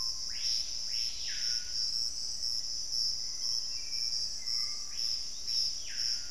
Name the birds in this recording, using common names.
Piratic Flycatcher, Screaming Piha, Black-faced Antthrush